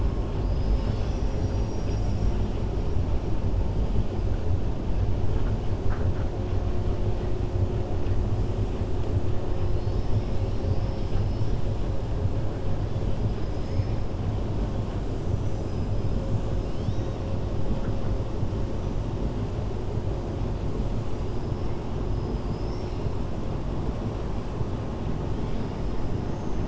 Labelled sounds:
13.2	13.9	killer whale, 4.4 to 7.4 kHz
15.3	16.1	killer whale, 5.0 to 8.0 kHz
22.1	23.0	killer whale, 3.9 to 6.2 kHz

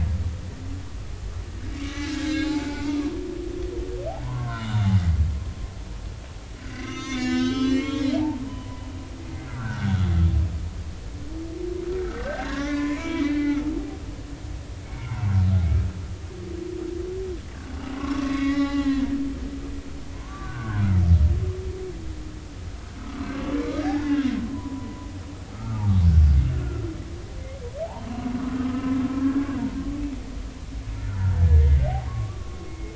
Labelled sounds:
1.7	3.2	humpback whale, 0.96 to 7.5 kHz
4.2	5.0	humpback whale, 0.86 to 3.8 kHz
6.7	8.9	humpback whale, 0.83 to 7.4 kHz
9.5	10.1	humpback whale, 1.3 to 3.6 kHz
12.0	13.7	humpback whale, 0.93 to 3.9 kHz
14.8	15.2	humpback whale, 2.0 to 2.3 kHz
17.8	19.1	humpback whale, 0.80 to 4.0 kHz
20.1	20.8	humpback whale, 0.93 to 1.7 kHz
23.0	23.3	humpback whale, 1.1 to 1.5 kHz
23.7	25.1	humpback whale, 0.80 to 2.1 kHz
25.5	25.9	humpback whale, 1.1 to 1.4 kHz
28.6	29.5	humpback whale, 1.2 to 1.7 kHz
31.1	32.9	humpback whale, 0.80 to 2.3 kHz

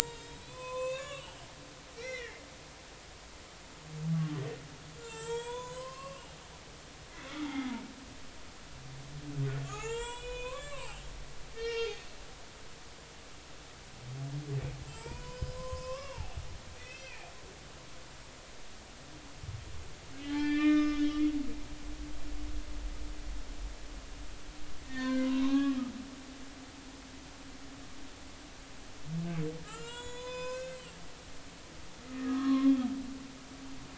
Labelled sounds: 0.0	1.5	humpback whale, 0.86 to 8.0 kHz
1.9	2.5	humpback whale, 1.7 to 5.8 kHz
5.0	6.2	humpback whale, 0.83 to 8.0 kHz
7.4	7.7	humpback whale, 2.0 to 2.2 kHz
9.7	11.0	humpback whale, 0.80 to 8.0 kHz
11.5	12.0	humpback whale, 1.3 to 5.7 kHz
14.9	16.4	humpback whale, 0.80 to 7.4 kHz
16.8	17.3	humpback whale, 1.8 to 2.7 kHz
20.2	21.2	humpback whale, 0.83 to 5.2 kHz
24.8	25.8	humpback whale, 0.93 to 3.9 kHz
29.6	30.8	humpback whale, 0.90 to 8.0 kHz
32.1	32.7	humpback whale, 0.99 to 1.4 kHz

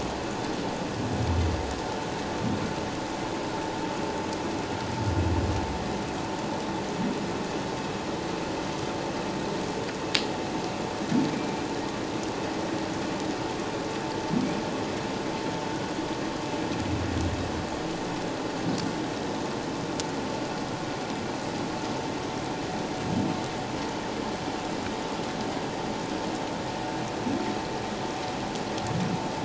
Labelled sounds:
11.3	11.6	humpback whale, 2.3 to 2.4 kHz

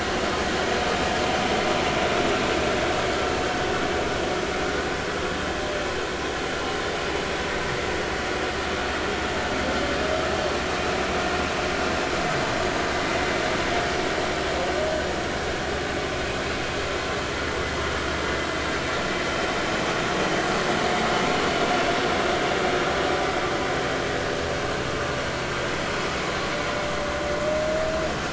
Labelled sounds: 6.6	6.8	humpback whale, 2.8 to 3.0 kHz

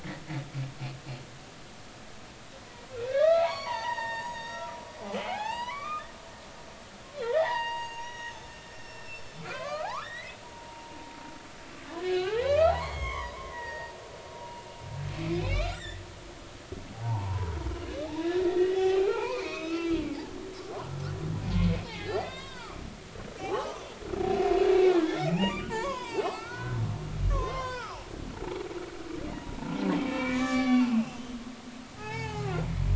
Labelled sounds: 2.9	6.1	humpback whale, 0.80 to 7.4 kHz
7.2	10.4	humpback whale, 0.80 to 7.6 kHz
10.7	10.9	humpback whale, 0.86 to 0.96 kHz
11.9	14.6	humpback whale, 0.80 to 6.5 kHz
15.3	16.0	humpback whale, 1.1 to 7.8 kHz
16.9	20.9	humpback whale, 0.80 to 4.4 kHz
21.5	22.8	humpback whale, 0.83 to 4.9 kHz
23.4	23.8	humpback whale, 0.80 to 3.3 kHz
24.7	26.8	humpback whale, 0.80 to 5.1 kHz
27.3	28.1	humpback whale, 0.80 to 5.9 kHz
29.9	31.2	humpback whale, 0.80 to 8.0 kHz
31.9	32.9	humpback whale, 0.80 to 5.0 kHz

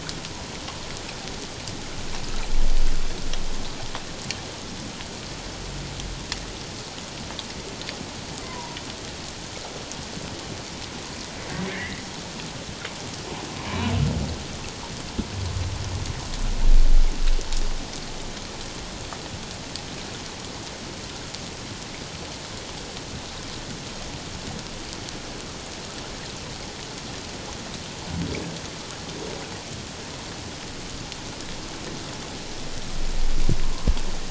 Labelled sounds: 8.4	8.8	humpback whale, 0.91 to 1.1 kHz
11.7	12.0	humpback whale, 1.6 to 2.2 kHz
13.6	13.9	humpback whale, 2.2 to 2.5 kHz

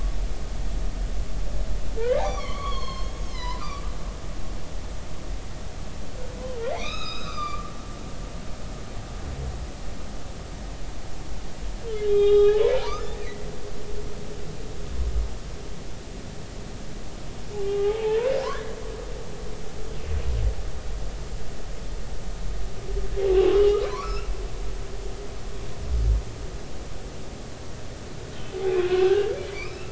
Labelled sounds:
2.0	3.8	humpback whale, 0.80 to 6.8 kHz
6.7	7.7	humpback whale, 1.1 to 6.8 kHz
12.0	13.5	humpback whale, 0.80 to 3.9 kHz
17.6	18.2	humpback whale, 0.80 to 3.3 kHz
18.5	18.8	humpback whale, 1.4 to 1.8 kHz
23.3	24.3	humpback whale, 0.96 to 3.0 kHz
28.7	29.9	humpback whale, 1.4 to 2.8 kHz

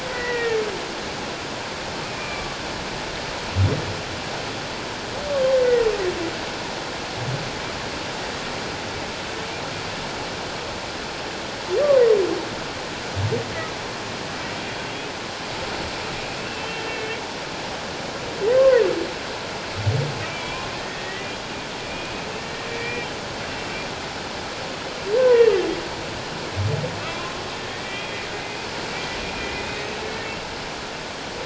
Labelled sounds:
0.1	0.7	humpback whale, 1.8 to 2.4 kHz
2.0	2.6	humpback whale, 1.1 to 2.6 kHz
5.6	5.9	humpback whale, 1.8 to 2.1 kHz
16.4	17.2	humpback whale, 2.1 to 3.2 kHz
18.6	18.8	humpback whale, 0.94 to 1.1 kHz
20.3	22.3	humpback whale, 0.94 to 2.6 kHz
22.7	23.1	humpback whale, 1.8 to 2.5 kHz
25.2	25.4	humpback whale, 0.91 to 1.1 kHz
27.5	28.3	humpback whale, 1.8 to 3.3 kHz
29.3	30.0	humpback whale, 2.3 to 3.8 kHz

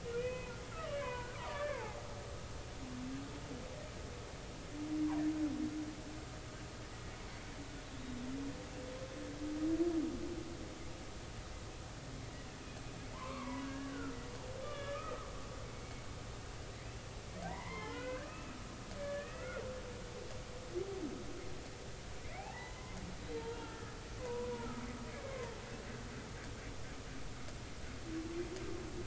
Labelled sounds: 0.1	2.0	humpback whale, 0.80 to 2.6 kHz
13.1	14.2	humpback whale, 0.86 to 2.4 kHz
14.6	15.3	humpback whale, 1.1 to 3.6 kHz
17.5	18.5	humpback whale, 0.86 to 5.3 kHz
19.0	19.6	humpback whale, 1.2 to 2.7 kHz
22.3	22.9	humpback whale, 0.80 to 4.1 kHz
23.7	24.8	humpback whale, 0.90 to 1.8 kHz
25.1	25.5	humpback whale, 0.90 to 2.3 kHz

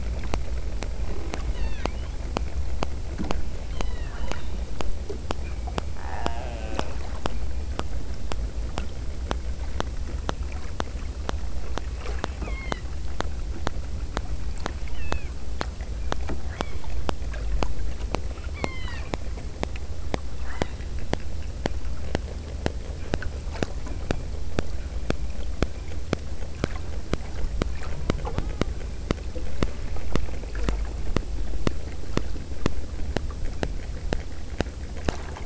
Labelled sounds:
1.5	2.0	killer whale, southern Alaska resident, 1.2 to 6.9 kHz
3.7	4.7	killer whale, southern Alaska resident, 0.62 to 5.3 kHz
5.9	7.2	killer whale, southern Alaska resident, 0.37 to 3.4 kHz
12.1	12.9	killer whale, southern Alaska resident, 0.78 to 4.5 kHz
14.9	15.4	killer whale, southern Alaska resident, 1.3 to 5.0 kHz
16.6	17.2	killer whale, southern Alaska resident, 0.68 to 5.5 kHz
18.5	19.2	killer whale, southern Alaska resident, 0.78 to 5.5 kHz
20.4	20.9	killer whale, southern Alaska resident, 0.55 to 3.3 kHz

